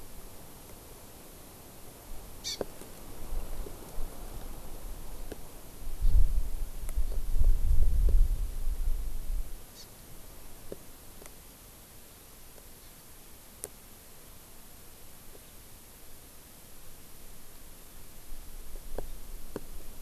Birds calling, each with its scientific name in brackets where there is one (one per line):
Hawaii Amakihi (Chlorodrepanis virens)